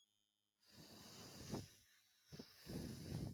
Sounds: Throat clearing